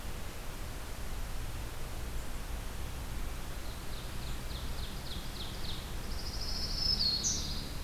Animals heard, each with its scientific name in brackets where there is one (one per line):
Ovenbird (Seiurus aurocapilla)
Pine Warbler (Setophaga pinus)
Black-throated Green Warbler (Setophaga virens)